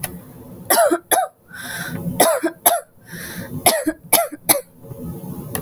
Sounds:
Cough